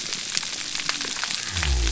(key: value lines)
label: biophony
recorder: SoundTrap 300